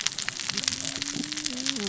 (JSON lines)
{"label": "biophony, cascading saw", "recorder": "SoundTrap 600 or HydroMoth"}